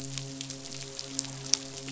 {"label": "biophony, midshipman", "recorder": "SoundTrap 500"}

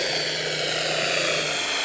{"label": "anthrophony, boat engine", "recorder": "SoundTrap 300"}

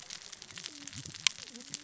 {"label": "biophony, cascading saw", "recorder": "SoundTrap 600 or HydroMoth"}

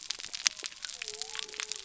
{"label": "biophony", "recorder": "SoundTrap 300"}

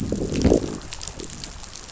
{"label": "biophony, growl", "recorder": "SoundTrap 500"}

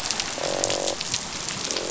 {"label": "biophony, croak", "recorder": "SoundTrap 500"}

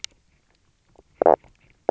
{"label": "biophony, knock croak", "recorder": "SoundTrap 300"}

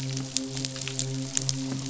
{"label": "biophony, midshipman", "recorder": "SoundTrap 500"}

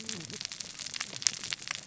{"label": "biophony, cascading saw", "recorder": "SoundTrap 600 or HydroMoth"}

